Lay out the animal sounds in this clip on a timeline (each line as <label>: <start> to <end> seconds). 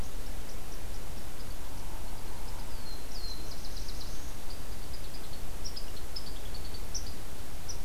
unidentified call: 0.0 to 7.8 seconds
Black-throated Blue Warbler (Setophaga caerulescens): 2.6 to 4.3 seconds